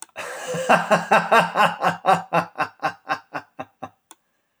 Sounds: Laughter